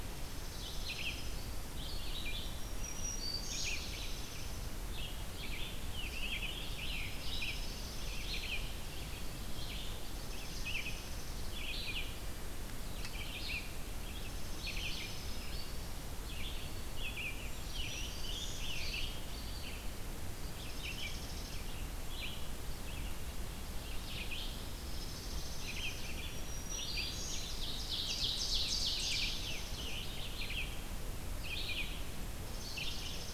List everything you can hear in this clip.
Red-eyed Vireo, Black-throated Green Warbler, Dark-eyed Junco, Ovenbird